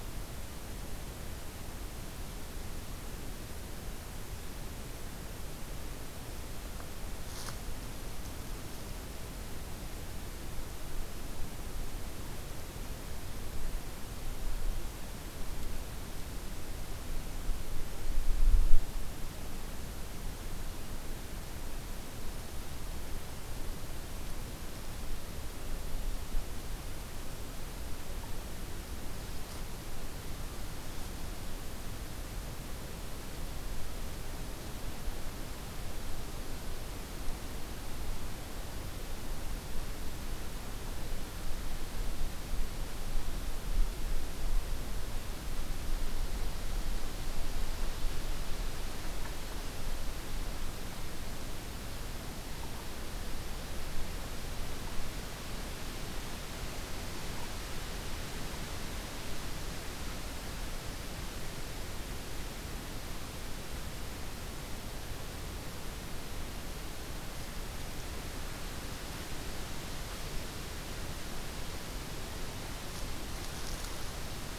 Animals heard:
forest ambience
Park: Katahdin Woods and Waters National Monument